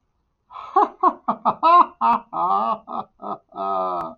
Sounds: Laughter